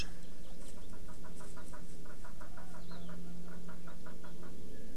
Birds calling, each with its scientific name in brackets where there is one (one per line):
Warbling White-eye (Zosterops japonicus)